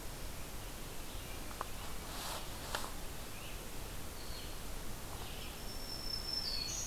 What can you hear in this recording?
Red-eyed Vireo, Black-throated Green Warbler